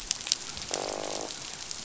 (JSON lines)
{"label": "biophony, croak", "recorder": "SoundTrap 500"}